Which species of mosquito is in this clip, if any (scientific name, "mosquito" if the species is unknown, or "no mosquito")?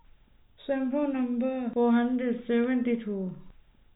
no mosquito